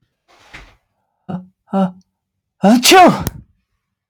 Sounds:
Sneeze